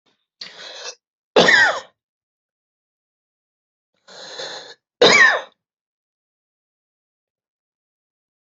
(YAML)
expert_labels:
- quality: good
  cough_type: dry
  dyspnea: false
  wheezing: true
  stridor: false
  choking: false
  congestion: false
  nothing: false
  diagnosis: obstructive lung disease
  severity: mild
age: 52
gender: female
respiratory_condition: false
fever_muscle_pain: false
status: symptomatic